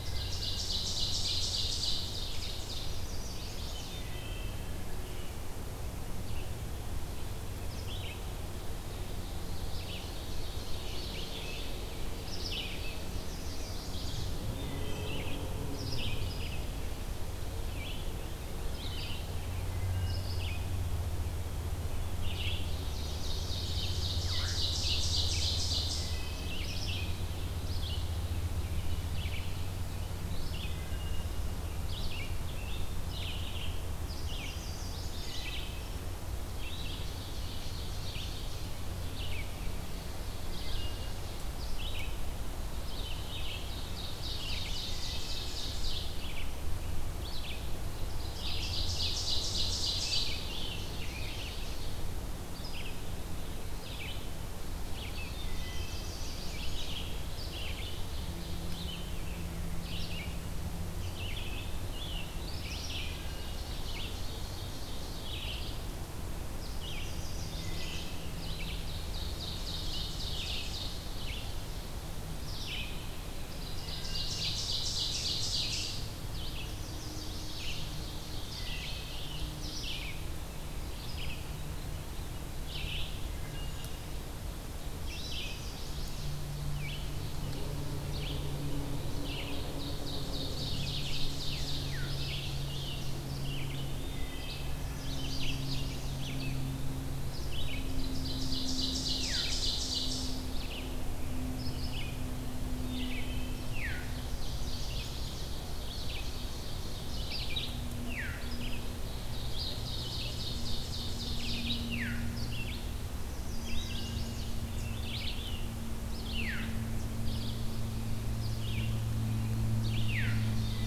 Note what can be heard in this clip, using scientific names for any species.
Seiurus aurocapilla, Hylocichla mustelina, Setophaga pensylvanica, Vireo olivaceus, Catharus fuscescens